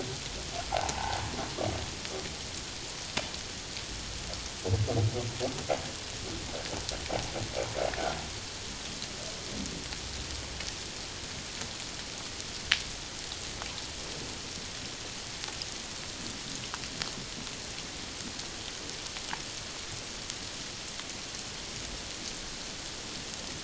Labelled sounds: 0.7	1.2	humpback whale, 0.78 to 1.1 kHz

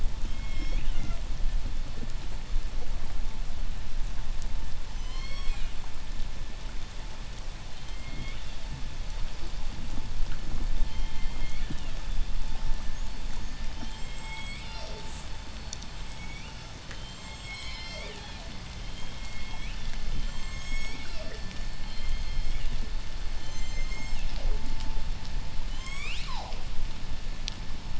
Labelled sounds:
0.3	1.3	killer whale, southern resident, J pod, 1.1 to 7.9 kHz
4.8	6.0	killer whale, southern resident, J pod, 0.79 to 8.0 kHz
7.5	8.7	killer whale, southern resident, J pod, 1.9 to 8.0 kHz
10.6	11.9	killer whale, southern resident, J pod, 1.8 to 5.5 kHz
13.4	15.3	killer whale, southern resident, J pod, 0.25 to 8.0 kHz
15.5	24.8	killer whale, southern resident, J pod, 0.25 to 8.0 kHz
25.4	26.8	killer whale, southern resident, J pod, 0.35 to 8.0 kHz

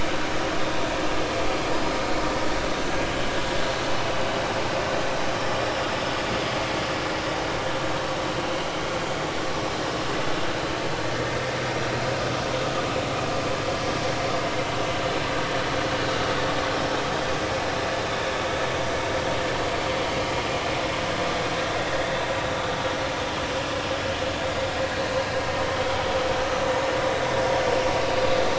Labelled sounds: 1.8	2.0	vessel noise, 4.8 to 5.1 kHz
9.0	9.3	vessel noise, 4.6 to 4.8 kHz

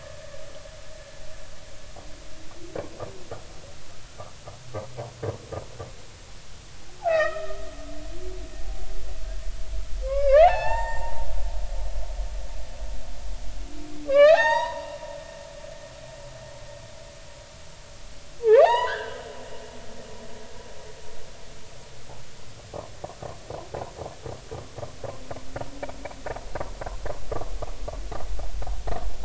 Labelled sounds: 7.0	7.7	humpback whale, 0.80 to 4.0 kHz
10.0	11.5	humpback whale, 0.80 to 7.4 kHz
14.1	14.9	humpback whale, 0.80 to 6.8 kHz
18.5	19.2	humpback whale, 0.80 to 7.0 kHz

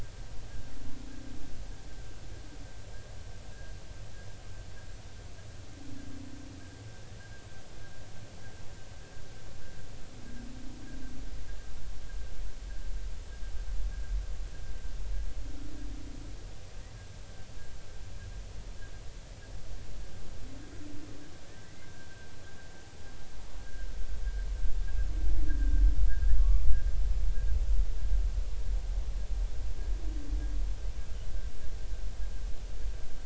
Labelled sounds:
21.6	21.9	humpback whale, 1.9 to 2.1 kHz
25.5	25.7	humpback whale, 1.5 to 1.8 kHz
26.3	26.7	humpback whale, 1.0 to 1.2 kHz

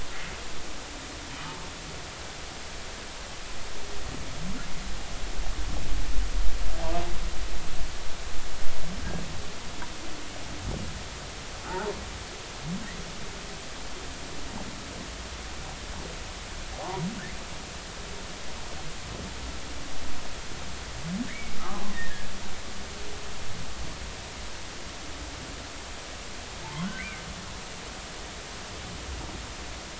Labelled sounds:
11.7	11.9	humpback whale, 0.80 to 0.99 kHz
16.8	17.0	humpback whale, 0.80 to 1.2 kHz
21.3	21.6	humpback whale, 1.7 to 2.4 kHz
21.9	22.3	humpback whale, 1.6 to 2.0 kHz
26.6	27.2	humpback whale, 0.83 to 2.5 kHz

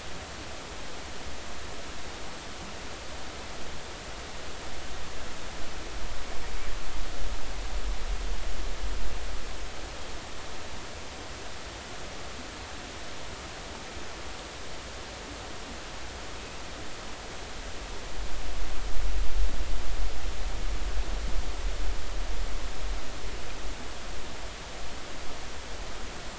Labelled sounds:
16.4	16.6	killer whale, 2.5 to 2.7 kHz

